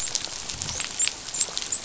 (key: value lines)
label: biophony, dolphin
recorder: SoundTrap 500